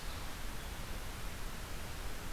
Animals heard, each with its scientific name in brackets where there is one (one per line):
Red-eyed Vireo (Vireo olivaceus)